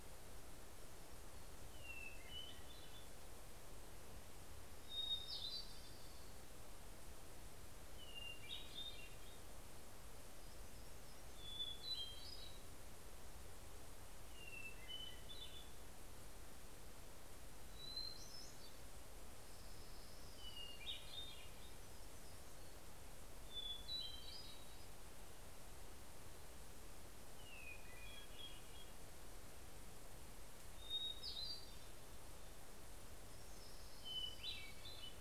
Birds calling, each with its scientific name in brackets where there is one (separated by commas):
Orange-crowned Warbler (Leiothlypis celata), Hermit Warbler (Setophaga occidentalis), Hermit Thrush (Catharus guttatus)